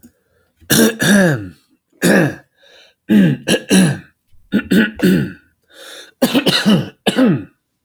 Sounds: Cough